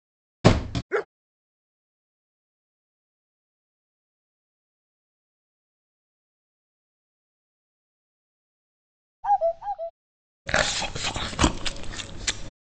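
At 0.44 seconds, a wooden cupboard closes. Then at 0.89 seconds, a dog barks. Later, at 9.23 seconds, a bird vocalization can be heard. Finally, from 10.46 to 12.5 seconds, there is chewing.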